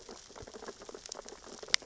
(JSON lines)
{"label": "biophony, sea urchins (Echinidae)", "recorder": "SoundTrap 600 or HydroMoth"}